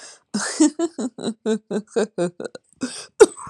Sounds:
Laughter